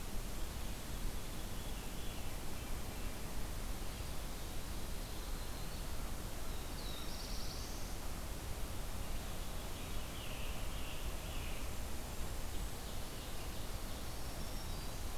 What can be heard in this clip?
Veery, Yellow-rumped Warbler, Black-throated Blue Warbler, Black-throated Green Warbler, Scarlet Tanager, Ovenbird